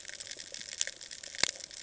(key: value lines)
label: ambient
recorder: HydroMoth